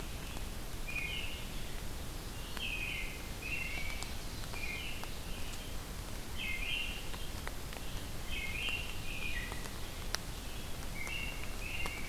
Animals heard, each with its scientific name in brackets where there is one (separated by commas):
American Robin (Turdus migratorius), Red-eyed Vireo (Vireo olivaceus)